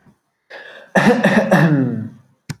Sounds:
Throat clearing